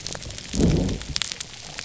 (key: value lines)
label: biophony
recorder: SoundTrap 300